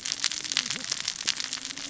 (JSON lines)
{"label": "biophony, cascading saw", "recorder": "SoundTrap 600 or HydroMoth"}